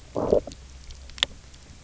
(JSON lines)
{"label": "biophony, low growl", "recorder": "SoundTrap 300"}